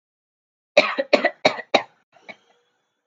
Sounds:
Cough